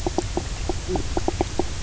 {"label": "biophony, knock croak", "recorder": "SoundTrap 300"}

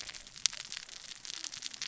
{"label": "biophony, cascading saw", "recorder": "SoundTrap 600 or HydroMoth"}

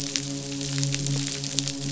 {"label": "biophony, midshipman", "recorder": "SoundTrap 500"}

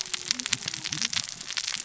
{"label": "biophony, cascading saw", "recorder": "SoundTrap 600 or HydroMoth"}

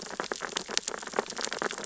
{"label": "biophony, sea urchins (Echinidae)", "recorder": "SoundTrap 600 or HydroMoth"}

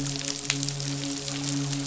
{"label": "biophony, midshipman", "recorder": "SoundTrap 500"}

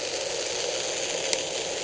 {"label": "anthrophony, boat engine", "recorder": "HydroMoth"}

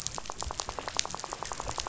{"label": "biophony, rattle", "recorder": "SoundTrap 500"}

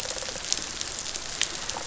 {"label": "biophony, rattle response", "recorder": "SoundTrap 500"}
{"label": "biophony", "recorder": "SoundTrap 500"}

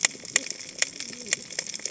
{"label": "biophony, cascading saw", "recorder": "HydroMoth"}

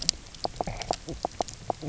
{"label": "biophony, knock croak", "recorder": "SoundTrap 300"}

